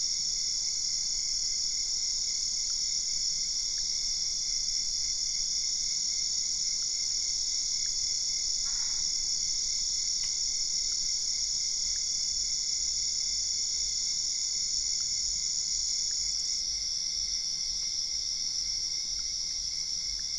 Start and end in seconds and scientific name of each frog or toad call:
8.6	9.1	Boana albopunctata